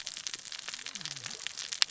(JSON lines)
{"label": "biophony, cascading saw", "recorder": "SoundTrap 600 or HydroMoth"}